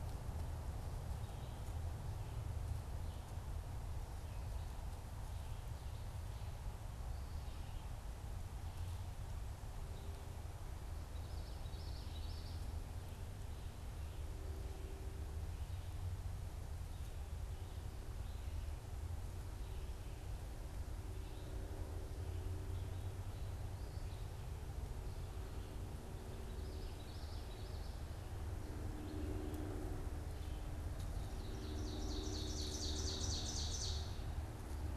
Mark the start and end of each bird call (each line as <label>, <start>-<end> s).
Common Yellowthroat (Geothlypis trichas), 10.9-12.6 s
Common Yellowthroat (Geothlypis trichas), 26.2-28.3 s
Ovenbird (Seiurus aurocapilla), 30.6-34.5 s